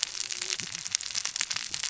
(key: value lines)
label: biophony, cascading saw
recorder: SoundTrap 600 or HydroMoth